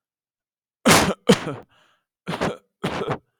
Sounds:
Cough